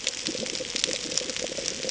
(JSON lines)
{"label": "ambient", "recorder": "HydroMoth"}